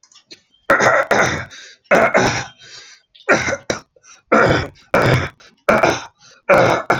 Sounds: Throat clearing